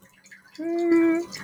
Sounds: Sigh